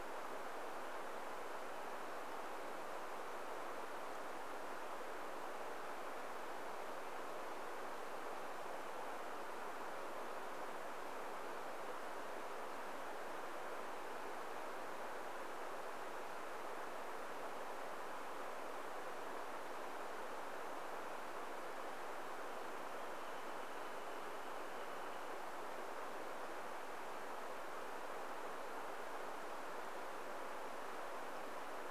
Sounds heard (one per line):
Wrentit song